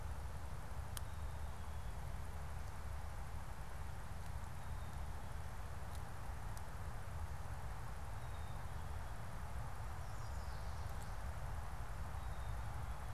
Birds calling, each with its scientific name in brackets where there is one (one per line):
unidentified bird
Black-capped Chickadee (Poecile atricapillus)